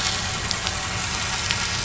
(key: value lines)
label: anthrophony, boat engine
recorder: SoundTrap 500